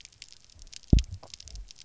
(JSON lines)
{"label": "biophony, double pulse", "recorder": "SoundTrap 300"}